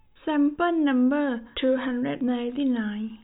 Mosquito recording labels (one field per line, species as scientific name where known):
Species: no mosquito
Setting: cup